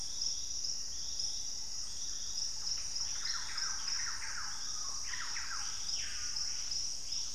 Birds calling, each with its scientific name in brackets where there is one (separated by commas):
Purple-throated Fruitcrow (Querula purpurata), Screaming Piha (Lipaugus vociferans), Black-faced Antthrush (Formicarius analis), Thrush-like Wren (Campylorhynchus turdinus)